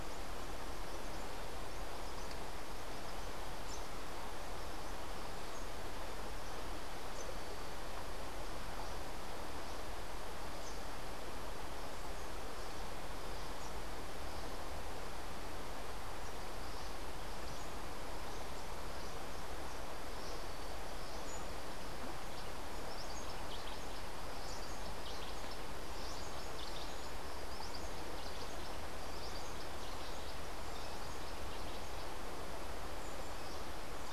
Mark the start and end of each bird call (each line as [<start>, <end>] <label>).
[22.80, 32.20] Cabanis's Wren (Cantorchilus modestus)